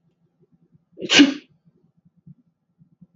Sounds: Sneeze